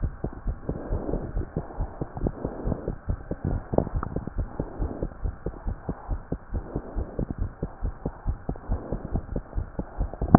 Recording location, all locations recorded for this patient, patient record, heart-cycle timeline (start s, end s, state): aortic valve (AV)
aortic valve (AV)+pulmonary valve (PV)+tricuspid valve (TV)+mitral valve (MV)
#Age: Child
#Sex: Male
#Height: 93.0 cm
#Weight: 19.2 kg
#Pregnancy status: False
#Murmur: Absent
#Murmur locations: nan
#Most audible location: nan
#Systolic murmur timing: nan
#Systolic murmur shape: nan
#Systolic murmur grading: nan
#Systolic murmur pitch: nan
#Systolic murmur quality: nan
#Diastolic murmur timing: nan
#Diastolic murmur shape: nan
#Diastolic murmur grading: nan
#Diastolic murmur pitch: nan
#Diastolic murmur quality: nan
#Outcome: Normal
#Campaign: 2015 screening campaign
0.00	0.10	S1
0.10	0.22	systole
0.22	0.30	S2
0.30	0.45	diastole
0.45	0.56	S1
0.56	0.67	systole
0.67	0.78	S2
0.78	0.89	diastole
0.89	0.98	S1
0.98	1.11	systole
1.11	1.24	S2
1.24	1.33	diastole
1.33	1.46	S1
1.46	1.54	systole
1.54	1.64	S2
1.64	1.77	diastole
1.77	1.88	S1
1.88	1.99	systole
1.99	2.06	S2
2.06	2.19	diastole
2.19	2.34	S1
2.34	2.42	systole
2.42	2.54	S2
2.54	2.64	diastole
2.64	2.76	S1
2.76	2.85	systole
2.85	2.96	S2
2.96	3.06	diastole
3.06	3.17	S1
3.17	3.29	systole
3.29	3.36	S2
3.36	3.92	unannotated
3.92	4.03	S1
4.03	4.13	systole
4.13	4.22	S2
4.22	4.35	diastole
4.35	4.48	S1
4.48	4.57	systole
4.57	4.68	S2
4.68	4.78	diastole
4.78	4.89	S1
4.89	5.00	systole
5.00	5.10	S2
5.10	5.21	diastole
5.21	5.34	S1
5.34	5.44	systole
5.44	5.54	S2
5.54	5.65	diastole
5.65	5.75	S1
5.75	5.86	systole
5.86	5.96	S2
5.96	6.08	diastole
6.08	6.19	S1
6.19	6.29	systole
6.29	6.40	S2
6.40	6.51	diastole
6.51	6.64	S1
6.64	6.73	systole
6.73	6.82	S2
6.82	6.95	diastole
6.95	7.06	S1
7.06	7.18	systole
7.18	7.30	S2
7.30	7.39	diastole
7.39	7.50	S1